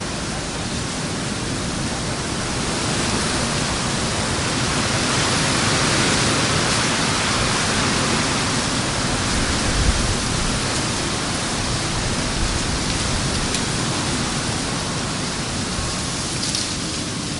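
Tree leaves rattling in the wind. 0:00.0 - 0:17.4
Wind blowing through a forest. 0:00.0 - 0:17.4

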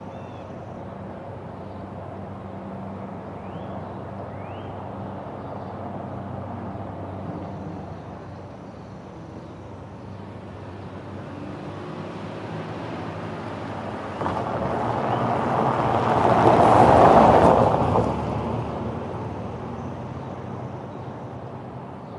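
Cars driving quietly in the distance in a monotone manner. 0:00.0 - 0:22.2
A car is passing by. 0:12.2 - 0:20.1
A car passes by loudly, then fades away. 0:12.2 - 0:20.1
Birds chirp quietly and irregularly in the distance. 0:19.3 - 0:21.6

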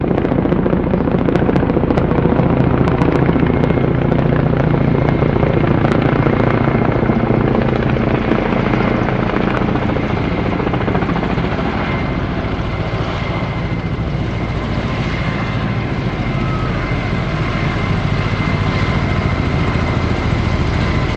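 Loud, rapid, and powerful helicopter rotor blades sound, steady and consistent. 0:00.0 - 0:21.2

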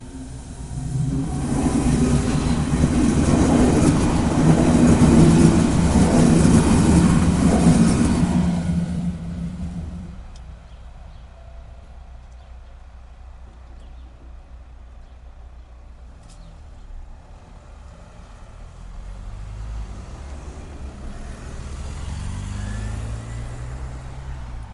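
A suburban train approaches with a loud metallic rumble that quickly fades out, followed by distant ambient summer sounds in a quiet outdoor environment. 0:00.1 - 0:23.7

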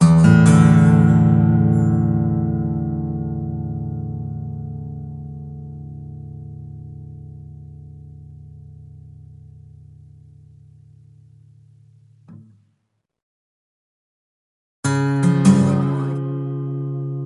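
A guitar riff is played and slowly fades out. 0:00.0 - 0:12.3
A guitar body is lightly tapped, producing a soft sound. 0:12.3 - 0:13.0
A guitar riff plays. 0:14.8 - 0:17.3

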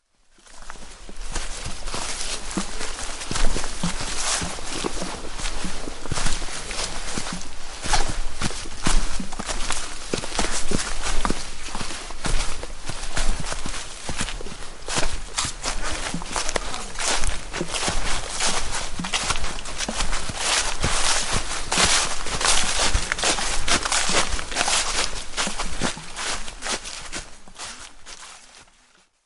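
Footsteps walking through the woods. 0:01.0 - 0:06.1
The crunching noise of leaves being walked on. 0:20.2 - 0:24.7

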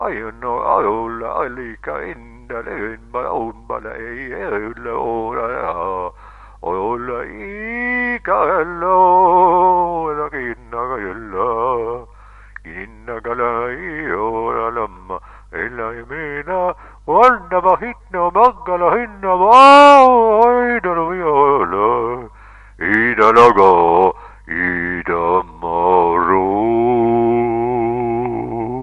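A man is singing a Native American chant. 0:00.1 - 0:28.8

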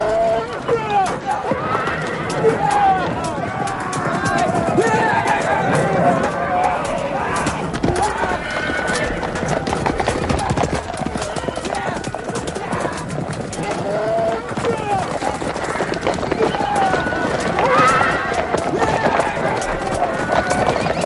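A horse neighs. 0:00.0 - 0:02.6
Multiple horses gallop in the background. 0:00.0 - 0:21.1
Swords clashing in the background. 0:00.0 - 0:21.1
A person shouting. 0:00.6 - 0:01.5
Humans shouting in the distance. 0:02.6 - 0:08.4
A horse neighs in the distance. 0:08.4 - 0:10.2
Humans shouting in the distance. 0:10.1 - 0:21.1
Horses neighing in the distance. 0:11.2 - 0:14.7
A horse neighs loudly. 0:17.5 - 0:18.5

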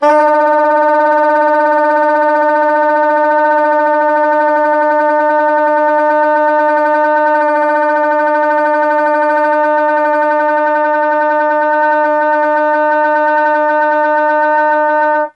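Overlapping saxophones playing. 0:00.0 - 0:15.4

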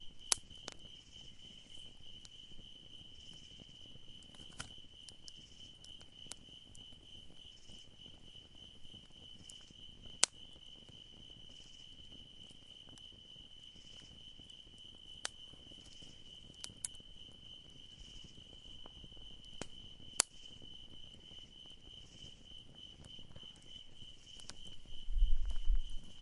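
The crackling of a fire fills the air with a soft sound. 0:00.1 - 0:01.2
The fire crackles softly. 0:09.1 - 0:11.6
The crackling of a fire fills the air softly. 0:14.8 - 0:16.9
The crackling of a fire fills the air softly. 0:19.5 - 0:20.7

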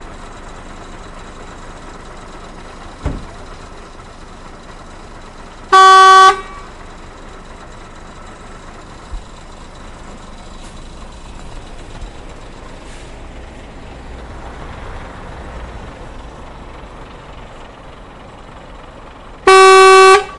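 Constant humming of cars outdoors. 0:00.0 - 0:20.4
A claxon fades away outdoors. 0:05.7 - 0:06.5
A claxon fades away outdoors. 0:19.4 - 0:20.4

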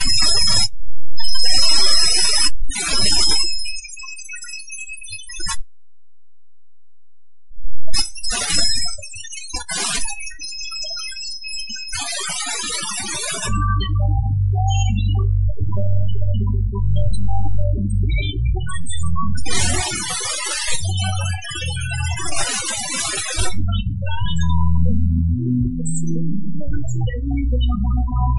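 An alien-like, echoing, digital screeching and chirping sound. 0:00.1 - 0:05.7
An alien-like digital screeching radio noise. 0:07.3 - 0:13.7
Electronic digital whistle sounds with a constant bass in the background. 0:13.9 - 0:19.4
Freaky, broken digital radio static with echoing sci-fi effects. 0:19.4 - 0:23.7
Echoing muffled alien sounds with a constant bass in the background. 0:23.8 - 0:28.4

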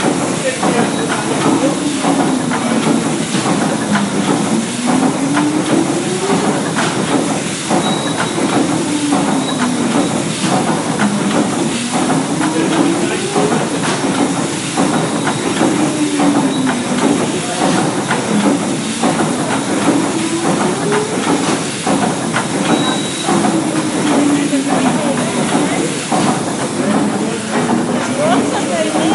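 A rhythmic mix of thudding pistons, whirring gears, and steam hissing from a vintage paddle steamer engine. 0:00.0 - 0:29.1
Overlapping background chatter with indistinct words. 0:00.2 - 0:29.1
A short, high-pitched beep. 0:07.8 - 0:08.6
A short, high-pitched beep. 0:09.4 - 0:09.9
A short, high-pitched beep. 0:22.7 - 0:23.4

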